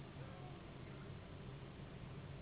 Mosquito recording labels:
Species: Anopheles gambiae s.s.; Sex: female; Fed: unfed; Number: one; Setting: insect culture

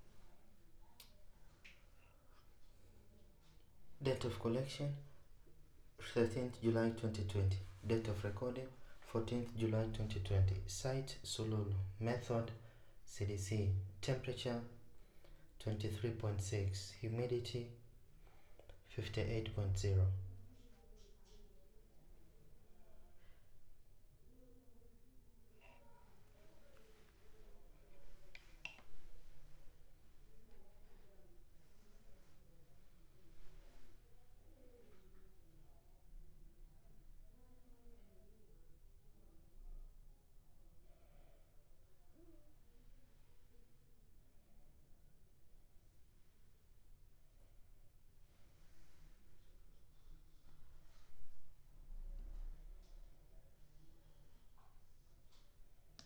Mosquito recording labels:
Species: no mosquito; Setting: cup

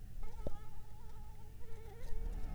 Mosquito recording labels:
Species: Anopheles arabiensis; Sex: female; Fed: unfed; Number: one; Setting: cup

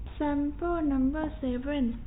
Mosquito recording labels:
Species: no mosquito; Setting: cup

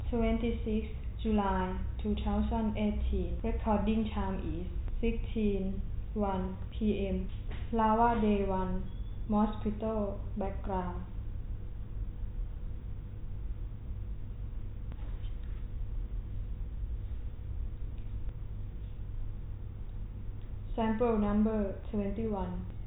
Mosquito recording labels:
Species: no mosquito; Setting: cup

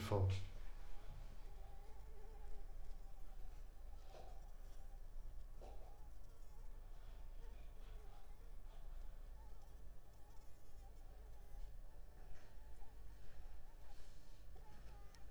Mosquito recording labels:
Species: Anopheles arabiensis; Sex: female; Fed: unfed; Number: one; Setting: cup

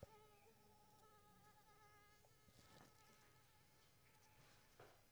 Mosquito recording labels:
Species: Anopheles squamosus; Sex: female; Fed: unfed; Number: one; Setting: cup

